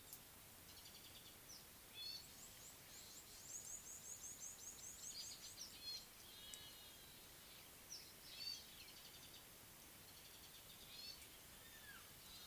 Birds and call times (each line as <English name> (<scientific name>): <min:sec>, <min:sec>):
Gray-backed Camaroptera (Camaroptera brevicaudata): 0:02.1, 0:08.5
Red-cheeked Cordonbleu (Uraeginthus bengalus): 0:04.5